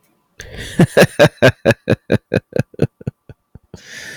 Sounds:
Laughter